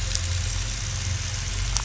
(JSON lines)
{"label": "anthrophony, boat engine", "recorder": "SoundTrap 500"}